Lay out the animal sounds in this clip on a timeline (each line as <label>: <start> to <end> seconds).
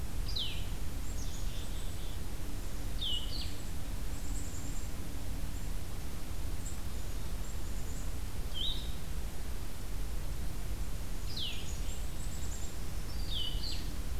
Blue-headed Vireo (Vireo solitarius): 0.0 to 1.1 seconds
Black-capped Chickadee (Poecile atricapillus): 0.9 to 2.3 seconds
Blue-headed Vireo (Vireo solitarius): 2.9 to 3.3 seconds
Black-capped Chickadee (Poecile atricapillus): 3.9 to 5.2 seconds
Blue-headed Vireo (Vireo solitarius): 8.2 to 14.2 seconds
Black-capped Chickadee (Poecile atricapillus): 11.5 to 13.1 seconds
Black-throated Green Warbler (Setophaga virens): 12.6 to 13.9 seconds